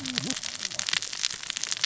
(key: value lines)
label: biophony, cascading saw
recorder: SoundTrap 600 or HydroMoth